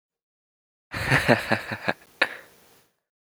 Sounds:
Laughter